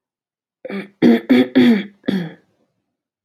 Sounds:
Throat clearing